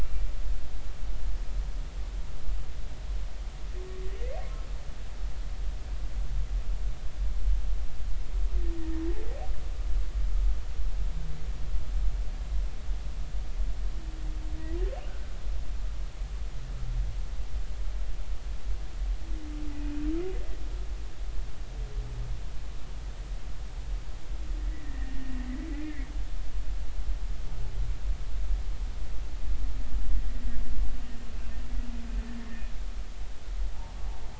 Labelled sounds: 15.1	15.3	humpback whale, 1.4 to 1.6 kHz
24.7	25.4	humpback whale, 1.7 to 2.0 kHz

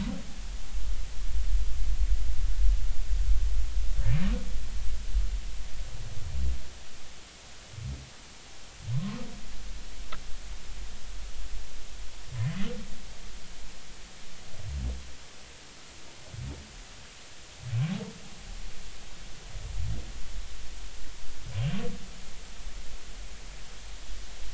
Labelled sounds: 8.9	9.2	humpback whale, 0.96 to 1.1 kHz

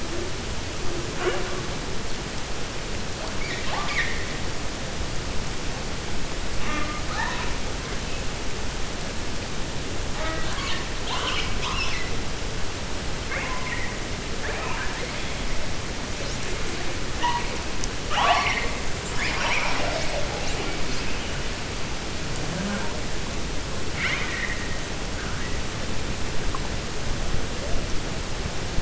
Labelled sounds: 3.3	4.3	killer whale, 0.72 to 6.0 kHz
10.9	12.1	killer whale, 0.76 to 6.2 kHz
14.3	15.0	killer whale, 0.46 to 2.7 kHz
23.8	24.7	killer whale, 1.1 to 5.9 kHz

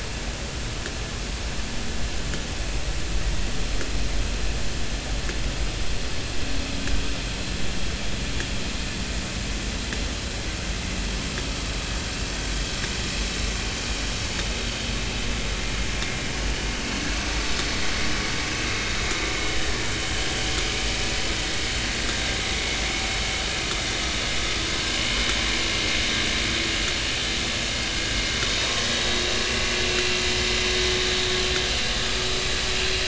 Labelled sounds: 19.4	19.7	vessel noise, 2.98 to 3.04 kHz
28.6	28.8	vessel noise, 0.90 to 1.1 kHz
29.2	30.2	vessel noise, 2.6 to 2.8 kHz

